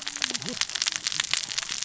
{"label": "biophony, cascading saw", "recorder": "SoundTrap 600 or HydroMoth"}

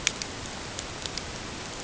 {"label": "ambient", "recorder": "HydroMoth"}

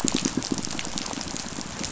{"label": "biophony, pulse", "recorder": "SoundTrap 500"}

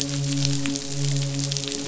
{"label": "biophony, midshipman", "recorder": "SoundTrap 500"}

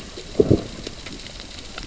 {"label": "biophony, growl", "recorder": "SoundTrap 600 or HydroMoth"}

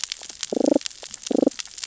{"label": "biophony, damselfish", "recorder": "SoundTrap 600 or HydroMoth"}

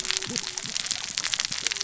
{"label": "biophony, cascading saw", "recorder": "SoundTrap 600 or HydroMoth"}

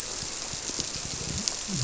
{"label": "biophony", "recorder": "SoundTrap 300"}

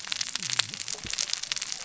{"label": "biophony, cascading saw", "recorder": "SoundTrap 600 or HydroMoth"}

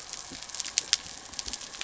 {"label": "anthrophony, boat engine", "recorder": "SoundTrap 300"}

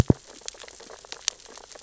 {"label": "biophony, sea urchins (Echinidae)", "recorder": "SoundTrap 600 or HydroMoth"}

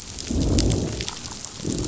{"label": "biophony, growl", "recorder": "SoundTrap 500"}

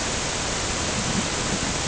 {"label": "ambient", "recorder": "HydroMoth"}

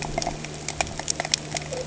{"label": "anthrophony, boat engine", "recorder": "HydroMoth"}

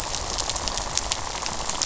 {"label": "biophony, rattle", "recorder": "SoundTrap 500"}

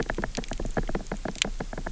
{"label": "biophony, knock", "recorder": "SoundTrap 300"}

